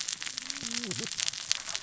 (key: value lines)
label: biophony, cascading saw
recorder: SoundTrap 600 or HydroMoth